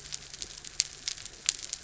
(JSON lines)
{"label": "anthrophony, mechanical", "recorder": "SoundTrap 300"}